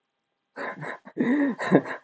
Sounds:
Laughter